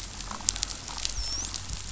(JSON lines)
{"label": "biophony, dolphin", "recorder": "SoundTrap 500"}